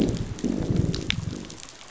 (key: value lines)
label: biophony, growl
recorder: SoundTrap 500